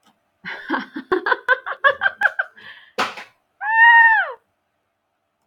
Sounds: Laughter